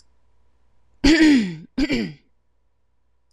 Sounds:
Throat clearing